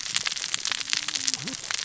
{"label": "biophony, cascading saw", "recorder": "SoundTrap 600 or HydroMoth"}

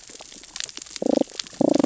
{"label": "biophony, damselfish", "recorder": "SoundTrap 600 or HydroMoth"}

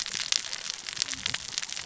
{"label": "biophony, cascading saw", "recorder": "SoundTrap 600 or HydroMoth"}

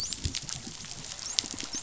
{"label": "biophony, dolphin", "recorder": "SoundTrap 500"}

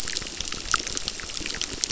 {"label": "biophony, crackle", "recorder": "SoundTrap 600"}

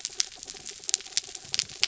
{"label": "anthrophony, mechanical", "recorder": "SoundTrap 300"}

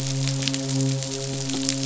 {"label": "biophony, midshipman", "recorder": "SoundTrap 500"}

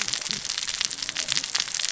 {"label": "biophony, cascading saw", "recorder": "SoundTrap 600 or HydroMoth"}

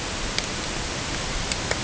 {"label": "ambient", "recorder": "HydroMoth"}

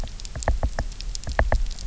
{"label": "biophony, knock", "recorder": "SoundTrap 300"}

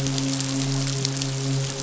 {"label": "biophony, midshipman", "recorder": "SoundTrap 500"}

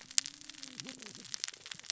{"label": "biophony, cascading saw", "recorder": "SoundTrap 600 or HydroMoth"}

